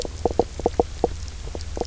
{"label": "biophony, knock croak", "recorder": "SoundTrap 300"}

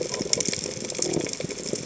{"label": "biophony", "recorder": "HydroMoth"}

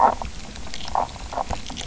{"label": "biophony", "recorder": "SoundTrap 300"}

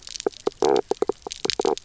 {"label": "biophony, knock croak", "recorder": "SoundTrap 300"}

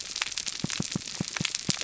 {"label": "biophony, pulse", "recorder": "SoundTrap 300"}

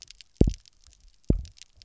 {"label": "biophony, double pulse", "recorder": "SoundTrap 300"}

